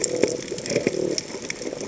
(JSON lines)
{"label": "biophony", "recorder": "HydroMoth"}